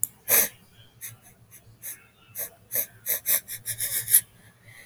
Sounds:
Sniff